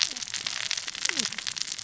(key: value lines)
label: biophony, cascading saw
recorder: SoundTrap 600 or HydroMoth